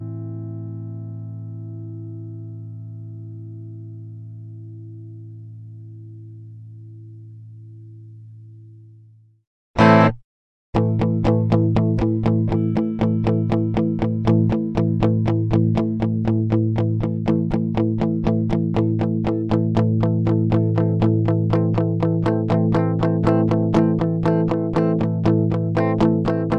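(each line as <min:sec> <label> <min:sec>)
0:00.0 An electric guitar plays a single tone. 0:09.6
0:09.7 An electric guitar plays a short tone. 0:10.2
0:10.7 Short tones of an electric guitar played at a constant frequency. 0:26.6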